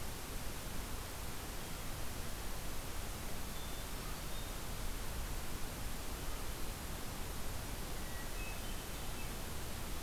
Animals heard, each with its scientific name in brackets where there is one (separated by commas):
Hermit Thrush (Catharus guttatus)